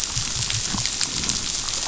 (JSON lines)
{"label": "biophony", "recorder": "SoundTrap 500"}